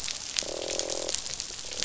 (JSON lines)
{"label": "biophony, croak", "recorder": "SoundTrap 500"}